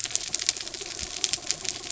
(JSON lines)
{"label": "anthrophony, mechanical", "recorder": "SoundTrap 300"}